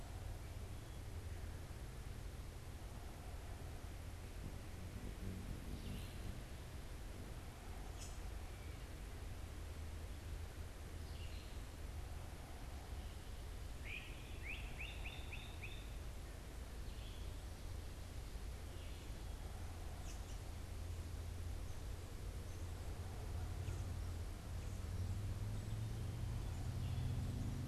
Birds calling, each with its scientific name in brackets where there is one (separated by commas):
Red-eyed Vireo (Vireo olivaceus), American Robin (Turdus migratorius), Great Crested Flycatcher (Myiarchus crinitus)